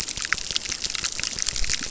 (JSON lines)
{"label": "biophony, crackle", "recorder": "SoundTrap 600"}